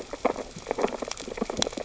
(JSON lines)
{"label": "biophony, sea urchins (Echinidae)", "recorder": "SoundTrap 600 or HydroMoth"}